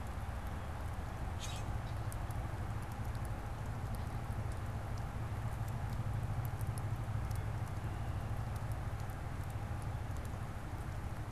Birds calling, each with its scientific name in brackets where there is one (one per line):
Common Grackle (Quiscalus quiscula)